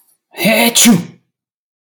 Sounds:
Sneeze